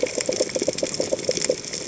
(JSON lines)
{"label": "biophony, chatter", "recorder": "HydroMoth"}